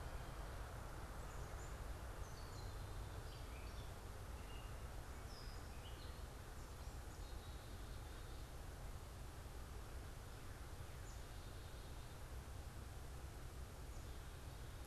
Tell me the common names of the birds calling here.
Gray Catbird